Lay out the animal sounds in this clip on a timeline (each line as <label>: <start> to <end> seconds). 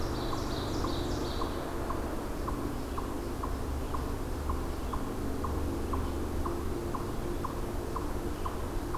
Ovenbird (Seiurus aurocapilla): 0.0 to 1.7 seconds
Eastern Chipmunk (Tamias striatus): 0.0 to 9.0 seconds